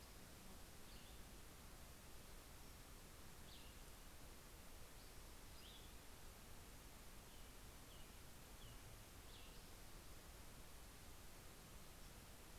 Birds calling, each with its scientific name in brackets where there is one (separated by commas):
Cassin's Vireo (Vireo cassinii), American Robin (Turdus migratorius)